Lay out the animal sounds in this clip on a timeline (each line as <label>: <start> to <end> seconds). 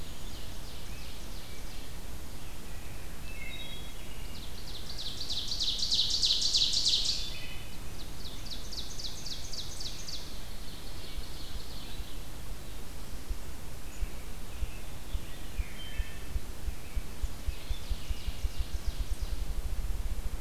Ovenbird (Seiurus aurocapilla): 0.0 to 2.0 seconds
Wood Thrush (Hylocichla mustelina): 3.2 to 4.1 seconds
Ovenbird (Seiurus aurocapilla): 4.2 to 7.4 seconds
Wood Thrush (Hylocichla mustelina): 7.1 to 7.8 seconds
Ovenbird (Seiurus aurocapilla): 7.9 to 12.1 seconds
American Robin (Turdus migratorius): 13.6 to 15.9 seconds
Ruffed Grouse (Bonasa umbellus): 13.6 to 20.4 seconds
Wood Thrush (Hylocichla mustelina): 15.7 to 16.3 seconds
Ovenbird (Seiurus aurocapilla): 17.5 to 19.5 seconds